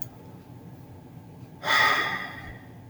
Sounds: Sigh